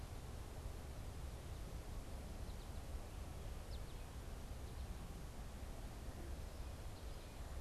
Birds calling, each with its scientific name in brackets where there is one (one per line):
American Goldfinch (Spinus tristis)